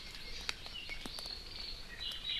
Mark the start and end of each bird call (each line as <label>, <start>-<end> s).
Hawaii Amakihi (Chlorodrepanis virens), 0.0-1.6 s